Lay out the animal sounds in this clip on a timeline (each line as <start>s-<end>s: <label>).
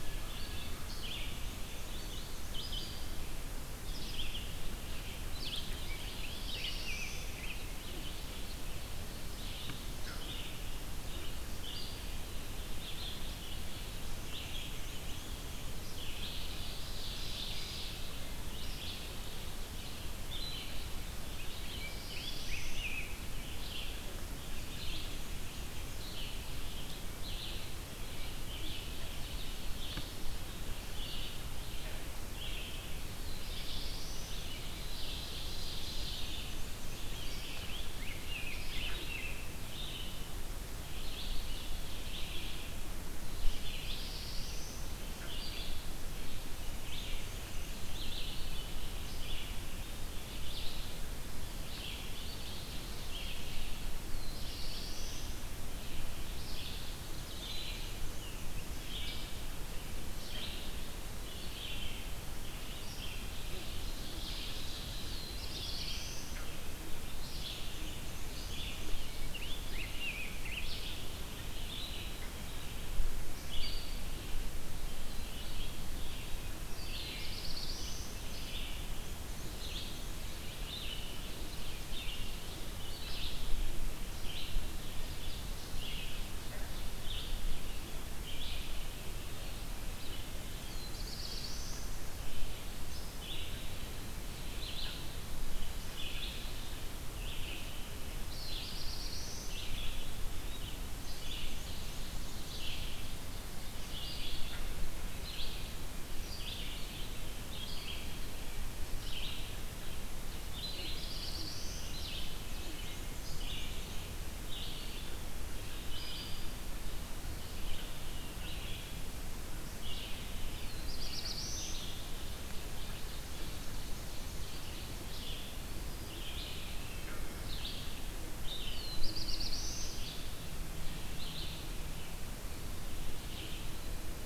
0.0s-134.3s: Red-eyed Vireo (Vireo olivaceus)
1.3s-3.0s: Black-and-white Warbler (Mniotilta varia)
6.1s-7.5s: Black-throated Blue Warbler (Setophaga caerulescens)
14.0s-16.1s: Black-and-white Warbler (Mniotilta varia)
16.0s-18.3s: Ovenbird (Seiurus aurocapilla)
21.3s-23.1s: Black-throated Blue Warbler (Setophaga caerulescens)
21.6s-23.2s: Rose-breasted Grosbeak (Pheucticus ludovicianus)
33.1s-34.7s: Black-throated Blue Warbler (Setophaga caerulescens)
34.6s-36.6s: Ovenbird (Seiurus aurocapilla)
35.9s-37.5s: Black-and-white Warbler (Mniotilta varia)
37.1s-39.5s: Rose-breasted Grosbeak (Pheucticus ludovicianus)
43.3s-45.1s: Black-throated Blue Warbler (Setophaga caerulescens)
46.6s-48.2s: Black-and-white Warbler (Mniotilta varia)
54.0s-55.6s: Black-throated Blue Warbler (Setophaga caerulescens)
57.0s-58.7s: Black-and-white Warbler (Mniotilta varia)
63.0s-65.6s: Ovenbird (Seiurus aurocapilla)
65.0s-66.6s: Black-throated Blue Warbler (Setophaga caerulescens)
67.4s-69.1s: Black-and-white Warbler (Mniotilta varia)
69.2s-70.9s: Rose-breasted Grosbeak (Pheucticus ludovicianus)
76.6s-78.4s: Black-throated Blue Warbler (Setophaga caerulescens)
78.8s-80.3s: Black-and-white Warbler (Mniotilta varia)
84.6s-87.0s: Ovenbird (Seiurus aurocapilla)
90.4s-92.2s: Black-throated Blue Warbler (Setophaga caerulescens)
98.4s-99.7s: Black-throated Blue Warbler (Setophaga caerulescens)
101.0s-102.8s: Black-and-white Warbler (Mniotilta varia)
110.4s-112.3s: Black-throated Blue Warbler (Setophaga caerulescens)
112.4s-114.2s: Black-and-white Warbler (Mniotilta varia)
120.6s-122.0s: Black-throated Blue Warbler (Setophaga caerulescens)
122.9s-125.0s: Ovenbird (Seiurus aurocapilla)
128.8s-130.2s: Black-throated Blue Warbler (Setophaga caerulescens)